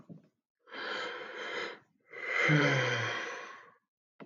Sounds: Sigh